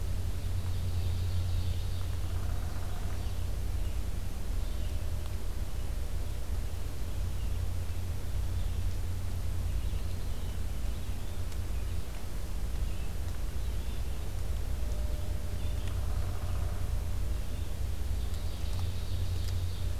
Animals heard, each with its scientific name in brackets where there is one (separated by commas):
Red-eyed Vireo (Vireo olivaceus), Yellow-bellied Flycatcher (Empidonax flaviventris), Downy Woodpecker (Dryobates pubescens), Ovenbird (Seiurus aurocapilla)